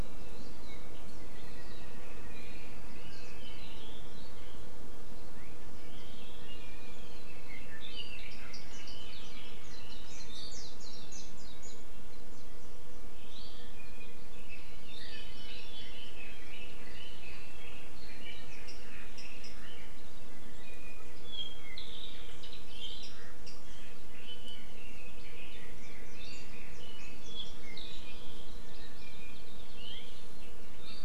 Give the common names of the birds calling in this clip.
Apapane, Red-billed Leiothrix, Hawaii Amakihi